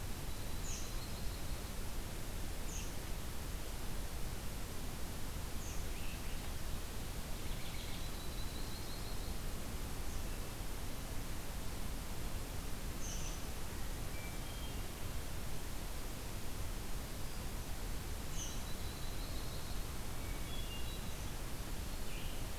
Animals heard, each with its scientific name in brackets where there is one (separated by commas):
Hermit Thrush (Catharus guttatus), Red-eyed Vireo (Vireo olivaceus), American Robin (Turdus migratorius), Yellow-rumped Warbler (Setophaga coronata)